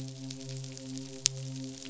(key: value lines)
label: biophony, midshipman
recorder: SoundTrap 500